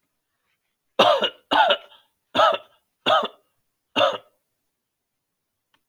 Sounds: Cough